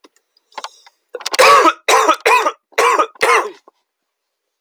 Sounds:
Cough